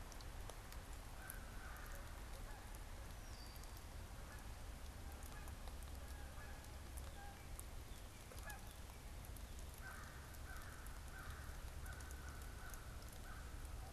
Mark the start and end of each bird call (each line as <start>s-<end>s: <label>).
0.0s-13.9s: Canada Goose (Branta canadensis)
3.1s-3.7s: Red-winged Blackbird (Agelaius phoeniceus)
9.5s-13.7s: American Crow (Corvus brachyrhynchos)